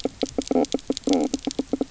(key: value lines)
label: biophony, knock croak
recorder: SoundTrap 300